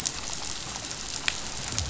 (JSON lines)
{"label": "biophony", "recorder": "SoundTrap 500"}